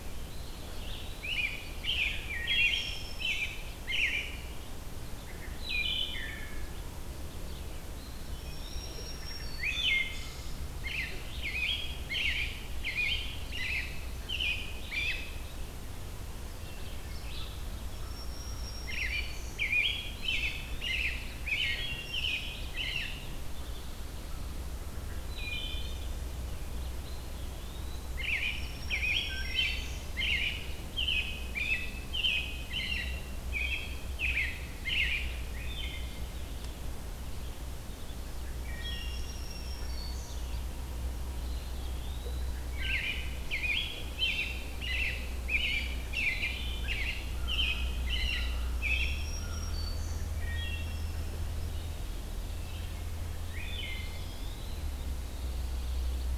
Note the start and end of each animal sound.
0.7s-4.6s: American Robin (Turdus migratorius)
5.4s-6.6s: Wood Thrush (Hylocichla mustelina)
7.7s-9.0s: Eastern Wood-Pewee (Contopus virens)
8.3s-10.1s: Black-throated Green Warbler (Setophaga virens)
9.5s-10.7s: Wood Thrush (Hylocichla mustelina)
10.7s-15.3s: American Robin (Turdus migratorius)
16.8s-17.7s: Red-eyed Vireo (Vireo olivaceus)
17.9s-19.7s: Black-throated Green Warbler (Setophaga virens)
18.7s-23.5s: American Robin (Turdus migratorius)
25.2s-26.1s: Wood Thrush (Hylocichla mustelina)
26.9s-28.1s: Eastern Wood-Pewee (Contopus virens)
28.1s-35.4s: American Robin (Turdus migratorius)
28.2s-30.0s: Black-throated Green Warbler (Setophaga virens)
29.3s-30.1s: Wood Thrush (Hylocichla mustelina)
35.5s-36.3s: Wood Thrush (Hylocichla mustelina)
38.5s-39.6s: Wood Thrush (Hylocichla mustelina)
38.6s-40.5s: Black-throated Green Warbler (Setophaga virens)
41.4s-42.5s: Eastern Wood-Pewee (Contopus virens)
42.4s-49.3s: American Robin (Turdus migratorius)
42.6s-43.5s: Wood Thrush (Hylocichla mustelina)
47.3s-50.0s: American Crow (Corvus brachyrhynchos)
48.6s-50.4s: Black-throated Green Warbler (Setophaga virens)
50.3s-51.5s: Wood Thrush (Hylocichla mustelina)
53.5s-54.4s: Wood Thrush (Hylocichla mustelina)
53.9s-55.1s: Eastern Wood-Pewee (Contopus virens)
55.0s-56.4s: Pine Warbler (Setophaga pinus)

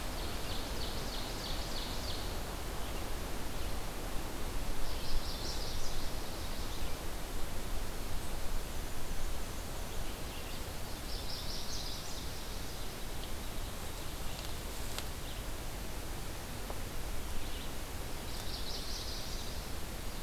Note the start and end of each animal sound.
0.0s-2.2s: Ovenbird (Seiurus aurocapilla)
4.7s-7.1s: Chestnut-sided Warbler (Setophaga pensylvanica)
8.4s-10.1s: Black-and-white Warbler (Mniotilta varia)
10.9s-12.3s: Chestnut-sided Warbler (Setophaga pensylvanica)
18.2s-19.6s: Chestnut-sided Warbler (Setophaga pensylvanica)

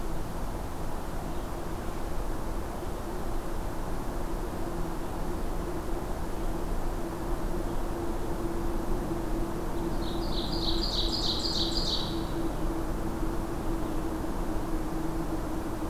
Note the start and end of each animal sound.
9.9s-12.6s: Ovenbird (Seiurus aurocapilla)

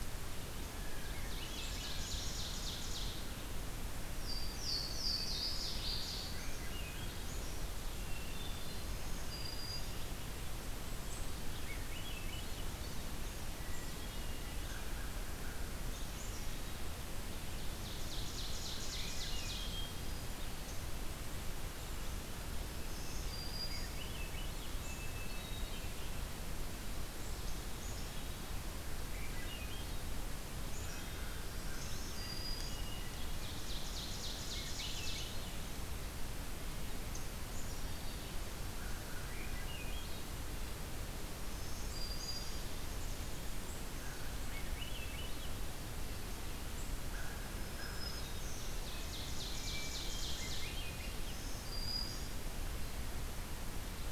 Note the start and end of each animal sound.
0.5s-1.5s: Blue Jay (Cyanocitta cristata)
0.9s-3.7s: Ovenbird (Seiurus aurocapilla)
1.0s-2.0s: Swainson's Thrush (Catharus ustulatus)
4.1s-6.3s: Louisiana Waterthrush (Parkesia motacilla)
6.3s-7.6s: Swainson's Thrush (Catharus ustulatus)
7.8s-9.0s: Hermit Thrush (Catharus guttatus)
8.6s-10.0s: Black-throated Green Warbler (Setophaga virens)
11.5s-12.6s: Swainson's Thrush (Catharus ustulatus)
13.5s-14.7s: Hermit Thrush (Catharus guttatus)
14.4s-15.9s: American Crow (Corvus brachyrhynchos)
15.8s-17.0s: Black-capped Chickadee (Poecile atricapillus)
17.3s-19.8s: Ovenbird (Seiurus aurocapilla)
18.7s-20.2s: Swainson's Thrush (Catharus ustulatus)
22.8s-24.1s: Black-throated Green Warbler (Setophaga virens)
23.5s-24.8s: Swainson's Thrush (Catharus ustulatus)
24.7s-26.1s: Hermit Thrush (Catharus guttatus)
27.8s-28.5s: Black-capped Chickadee (Poecile atricapillus)
28.9s-30.2s: Swainson's Thrush (Catharus ustulatus)
30.7s-31.9s: American Crow (Corvus brachyrhynchos)
30.7s-31.5s: Black-capped Chickadee (Poecile atricapillus)
31.5s-33.0s: Black-throated Green Warbler (Setophaga virens)
32.9s-35.2s: Ovenbird (Seiurus aurocapilla)
34.4s-35.6s: Swainson's Thrush (Catharus ustulatus)
37.5s-38.4s: Black-capped Chickadee (Poecile atricapillus)
38.8s-39.8s: American Crow (Corvus brachyrhynchos)
39.2s-40.5s: Swainson's Thrush (Catharus ustulatus)
41.0s-43.1s: Black-throated Green Warbler (Setophaga virens)
44.0s-45.6s: Swainson's Thrush (Catharus ustulatus)
47.0s-48.3s: American Crow (Corvus brachyrhynchos)
47.1s-48.7s: Black-throated Green Warbler (Setophaga virens)
48.3s-51.1s: Ovenbird (Seiurus aurocapilla)
49.4s-50.4s: Hermit Thrush (Catharus guttatus)
50.2s-51.5s: Swainson's Thrush (Catharus ustulatus)
50.9s-52.4s: Black-throated Green Warbler (Setophaga virens)

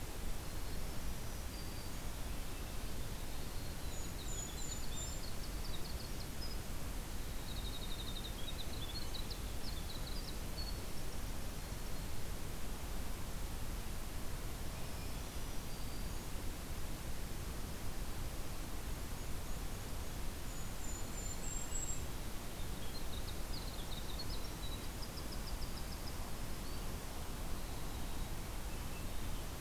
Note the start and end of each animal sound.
0.8s-2.2s: Black-throated Green Warbler (Setophaga virens)
1.9s-3.2s: Swainson's Thrush (Catharus ustulatus)
3.2s-6.7s: Winter Wren (Troglodytes hiemalis)
3.8s-5.4s: Golden-crowned Kinglet (Regulus satrapa)
7.3s-12.0s: Winter Wren (Troglodytes hiemalis)
14.5s-15.8s: Swainson's Thrush (Catharus ustulatus)
14.7s-16.4s: Black-throated Green Warbler (Setophaga virens)
18.9s-20.3s: Black-and-white Warbler (Mniotilta varia)
20.3s-22.1s: Golden-crowned Kinglet (Regulus satrapa)
22.4s-26.3s: Winter Wren (Troglodytes hiemalis)
28.2s-29.6s: Swainson's Thrush (Catharus ustulatus)

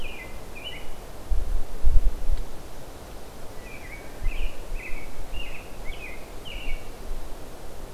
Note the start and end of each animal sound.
0.0s-1.0s: American Robin (Turdus migratorius)
3.5s-7.0s: American Robin (Turdus migratorius)

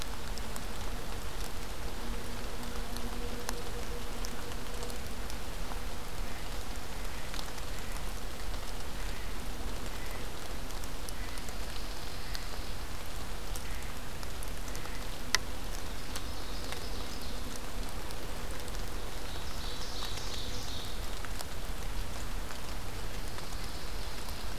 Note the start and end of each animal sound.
8.9s-15.0s: Blue Jay (Cyanocitta cristata)
11.2s-12.8s: Pine Warbler (Setophaga pinus)
15.7s-17.5s: Ovenbird (Seiurus aurocapilla)
18.9s-21.3s: Ovenbird (Seiurus aurocapilla)
22.9s-24.6s: Pine Warbler (Setophaga pinus)

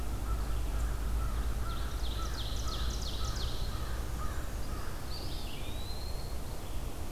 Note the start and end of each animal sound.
0.0s-5.2s: American Crow (Corvus brachyrhynchos)
0.0s-7.1s: Red-eyed Vireo (Vireo olivaceus)
1.4s-3.7s: Ovenbird (Seiurus aurocapilla)
5.1s-6.4s: Eastern Wood-Pewee (Contopus virens)

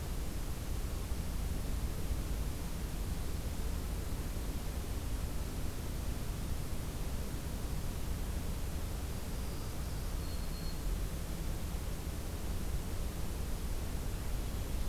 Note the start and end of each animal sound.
9.1s-11.0s: Black-throated Green Warbler (Setophaga virens)

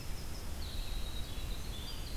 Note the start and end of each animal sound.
0.0s-2.2s: Red-eyed Vireo (Vireo olivaceus)
0.0s-2.2s: Winter Wren (Troglodytes hiemalis)

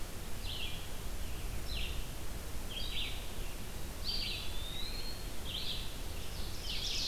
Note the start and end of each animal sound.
0.0s-7.1s: Red-eyed Vireo (Vireo olivaceus)
3.9s-5.6s: Eastern Wood-Pewee (Contopus virens)
6.5s-7.1s: Ovenbird (Seiurus aurocapilla)

